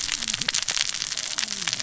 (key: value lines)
label: biophony, cascading saw
recorder: SoundTrap 600 or HydroMoth